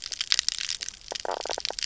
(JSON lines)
{"label": "biophony, knock croak", "recorder": "SoundTrap 300"}